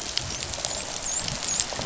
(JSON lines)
{"label": "biophony, dolphin", "recorder": "SoundTrap 500"}